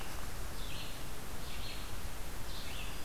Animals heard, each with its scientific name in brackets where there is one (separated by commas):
Red-eyed Vireo (Vireo olivaceus)